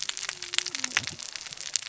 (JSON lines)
{"label": "biophony, cascading saw", "recorder": "SoundTrap 600 or HydroMoth"}